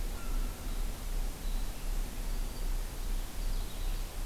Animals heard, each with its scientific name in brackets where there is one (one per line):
Black-throated Green Warbler (Setophaga virens)
American Herring Gull (Larus smithsonianus)
American Robin (Turdus migratorius)
Purple Finch (Haemorhous purpureus)